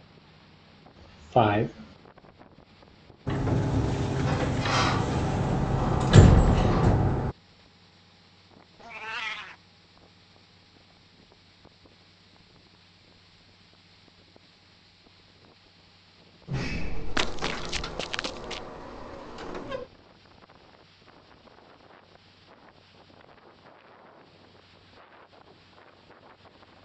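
At 1.35 seconds, someone says "five". Then at 3.26 seconds, a loud sliding door is heard. Next, at 8.78 seconds, a cat meows. Afterwards, at 16.47 seconds, the sound of a sliding door is audible. Meanwhile, at 17.15 seconds, someone runs.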